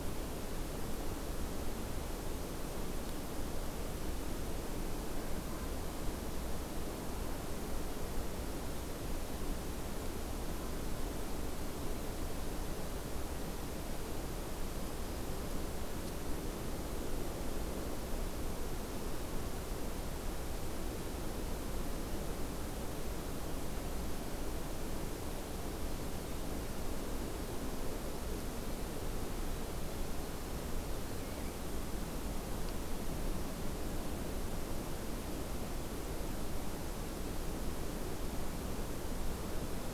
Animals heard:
forest ambience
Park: Acadia National Park